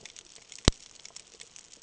{"label": "ambient", "recorder": "HydroMoth"}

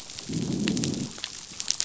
{"label": "biophony, growl", "recorder": "SoundTrap 500"}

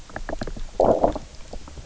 {"label": "biophony, low growl", "recorder": "SoundTrap 300"}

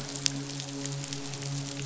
{"label": "biophony, midshipman", "recorder": "SoundTrap 500"}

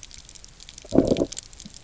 {"label": "biophony, low growl", "recorder": "SoundTrap 300"}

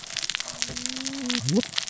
{"label": "biophony, cascading saw", "recorder": "SoundTrap 600 or HydroMoth"}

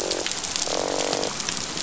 {"label": "biophony, croak", "recorder": "SoundTrap 500"}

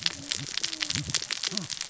{"label": "biophony, cascading saw", "recorder": "SoundTrap 600 or HydroMoth"}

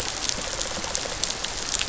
{"label": "biophony", "recorder": "SoundTrap 500"}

